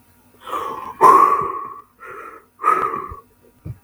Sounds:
Sigh